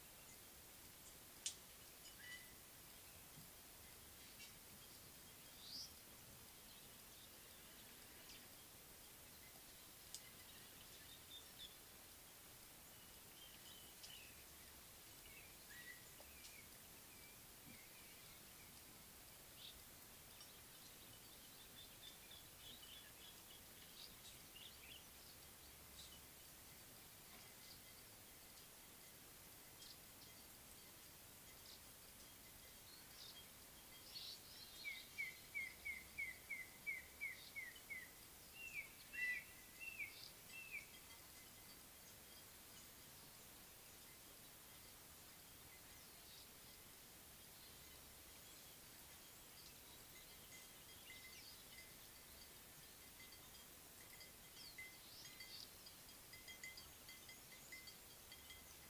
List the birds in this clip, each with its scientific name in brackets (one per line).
Baglafecht Weaver (Ploceus baglafecht)
Spotted Morning-Thrush (Cichladusa guttata)